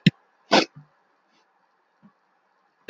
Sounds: Sniff